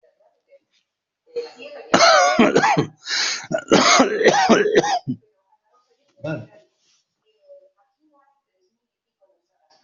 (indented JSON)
{
  "expert_labels": [
    {
      "quality": "ok",
      "cough_type": "dry",
      "dyspnea": false,
      "wheezing": false,
      "stridor": false,
      "choking": true,
      "congestion": false,
      "nothing": false,
      "diagnosis": "lower respiratory tract infection",
      "severity": "severe"
    }
  ],
  "age": 69,
  "gender": "male",
  "respiratory_condition": false,
  "fever_muscle_pain": false,
  "status": "COVID-19"
}